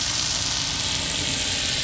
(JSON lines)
{"label": "anthrophony, boat engine", "recorder": "SoundTrap 500"}